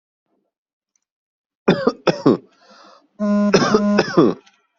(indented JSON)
{
  "expert_labels": [
    {
      "quality": "good",
      "cough_type": "dry",
      "dyspnea": false,
      "wheezing": false,
      "stridor": false,
      "choking": false,
      "congestion": false,
      "nothing": true,
      "diagnosis": "upper respiratory tract infection",
      "severity": "mild"
    }
  ],
  "age": 26,
  "gender": "male",
  "respiratory_condition": false,
  "fever_muscle_pain": false,
  "status": "healthy"
}